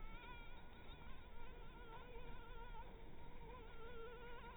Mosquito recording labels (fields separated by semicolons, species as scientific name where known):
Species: Anopheles maculatus; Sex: female; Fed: blood-fed; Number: one; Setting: cup